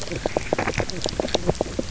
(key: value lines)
label: biophony, knock croak
recorder: SoundTrap 300